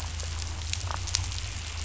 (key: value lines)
label: anthrophony, boat engine
recorder: SoundTrap 500